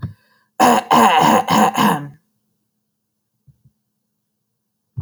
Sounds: Throat clearing